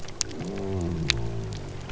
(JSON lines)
{"label": "biophony", "recorder": "SoundTrap 300"}